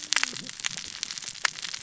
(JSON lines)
{"label": "biophony, cascading saw", "recorder": "SoundTrap 600 or HydroMoth"}